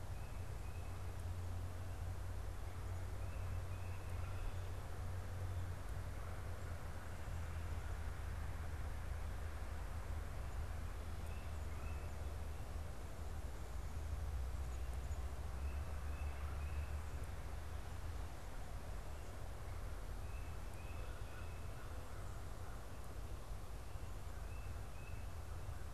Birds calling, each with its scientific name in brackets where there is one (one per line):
Tufted Titmouse (Baeolophus bicolor)